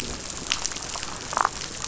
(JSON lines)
{"label": "biophony, damselfish", "recorder": "SoundTrap 500"}